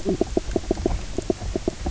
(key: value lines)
label: biophony, knock croak
recorder: SoundTrap 300